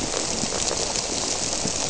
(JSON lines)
{"label": "biophony", "recorder": "SoundTrap 300"}